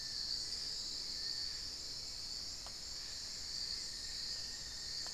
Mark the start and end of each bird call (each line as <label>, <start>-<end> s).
Long-billed Woodcreeper (Nasica longirostris), 0.0-1.9 s
Hauxwell's Thrush (Turdus hauxwelli), 0.0-5.1 s
Cinnamon-throated Woodcreeper (Dendrexetastes rufigula), 3.2-5.1 s